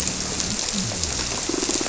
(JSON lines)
{"label": "biophony", "recorder": "SoundTrap 300"}